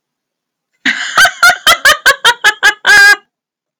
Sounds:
Laughter